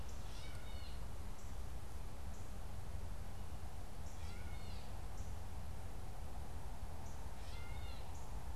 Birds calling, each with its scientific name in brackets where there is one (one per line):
Gray Catbird (Dumetella carolinensis)
Northern Cardinal (Cardinalis cardinalis)